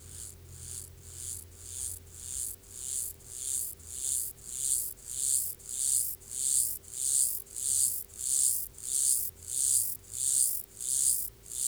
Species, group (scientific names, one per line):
Myrmeleotettix maculatus
Orthoptera